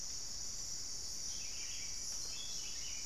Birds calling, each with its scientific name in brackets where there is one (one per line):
Buff-throated Saltator (Saltator maximus)